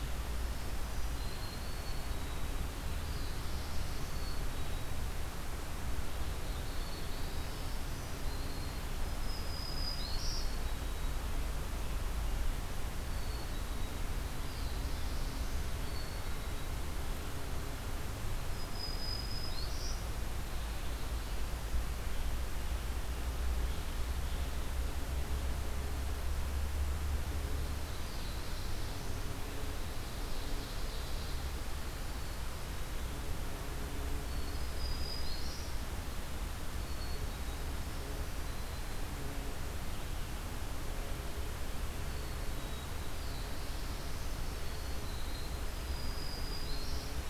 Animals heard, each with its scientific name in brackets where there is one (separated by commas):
Ovenbird (Seiurus aurocapilla), Black-throated Blue Warbler (Setophaga caerulescens), Black-capped Chickadee (Poecile atricapillus), Black-throated Green Warbler (Setophaga virens)